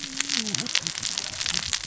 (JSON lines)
{"label": "biophony, cascading saw", "recorder": "SoundTrap 600 or HydroMoth"}